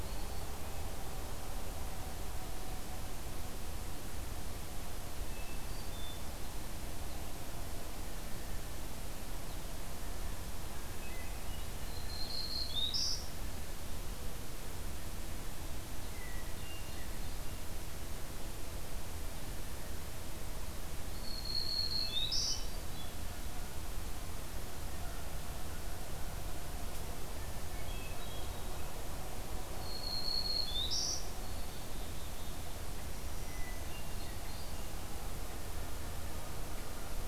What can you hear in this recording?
Black-throated Green Warbler, Hermit Thrush, Blue Jay, Black-capped Chickadee